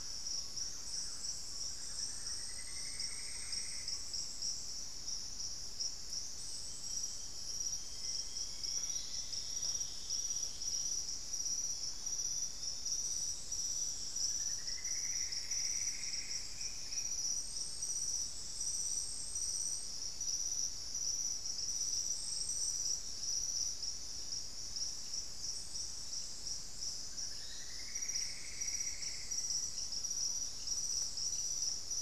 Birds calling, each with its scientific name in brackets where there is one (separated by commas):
Pygmy Antwren (Myrmotherula brachyura), Thrush-like Wren (Campylorhynchus turdinus), Plumbeous Antbird (Myrmelastes hyperythrus), Black-faced Antthrush (Formicarius analis)